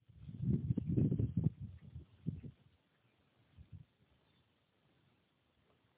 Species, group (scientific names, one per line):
Roeseliana roeselii
Orthoptera